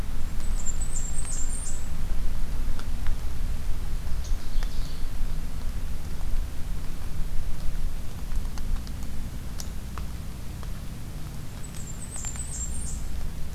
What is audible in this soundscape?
Blackburnian Warbler, unidentified call, Ovenbird